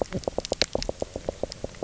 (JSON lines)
{"label": "biophony, knock croak", "recorder": "SoundTrap 300"}